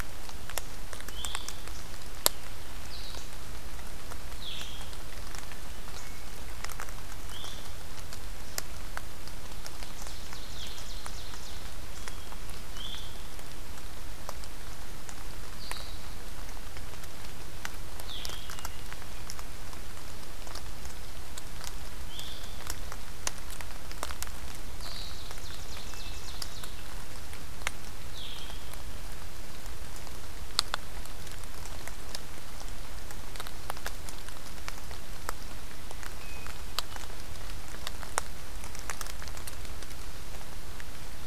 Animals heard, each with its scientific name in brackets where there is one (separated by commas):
Hermit Thrush (Catharus guttatus), Blue-headed Vireo (Vireo solitarius), Ovenbird (Seiurus aurocapilla)